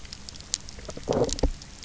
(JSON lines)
{"label": "biophony", "recorder": "SoundTrap 300"}